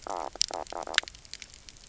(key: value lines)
label: biophony, knock croak
recorder: SoundTrap 300